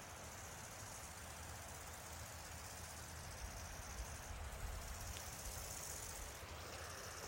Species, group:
Chorthippus biguttulus, Orthoptera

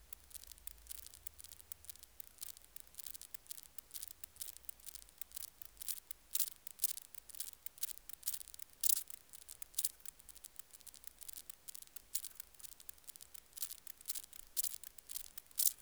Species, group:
Stauroderus scalaris, Orthoptera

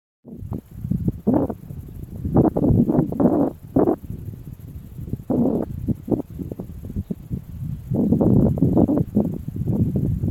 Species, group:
Tettigettalna argentata, Cicadidae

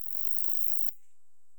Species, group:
Saga hellenica, Orthoptera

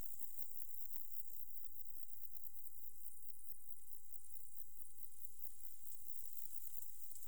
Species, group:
Metrioptera buyssoni, Orthoptera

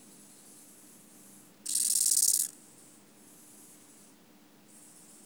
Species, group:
Chorthippus eisentrauti, Orthoptera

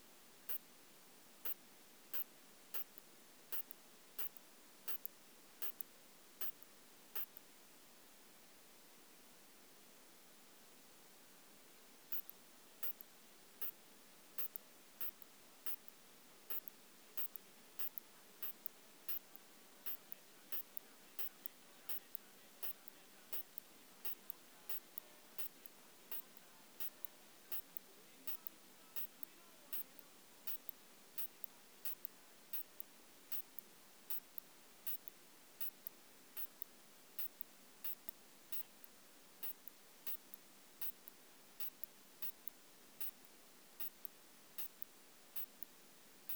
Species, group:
Isophya pyrenaea, Orthoptera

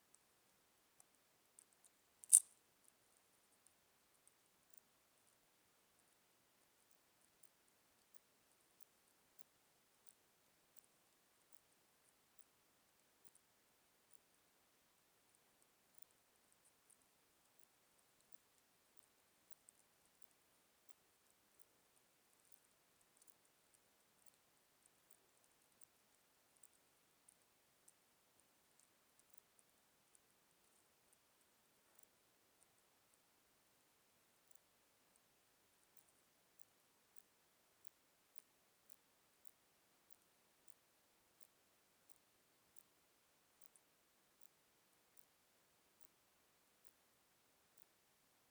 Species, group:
Poecilimon deplanatus, Orthoptera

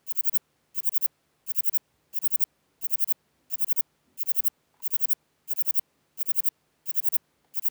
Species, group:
Platycleis grisea, Orthoptera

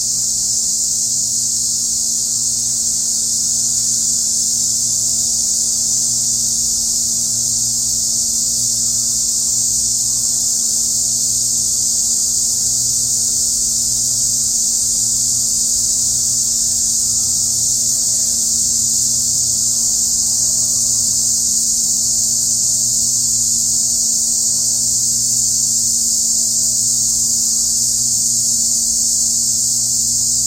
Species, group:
Chremistica ochracea, Cicadidae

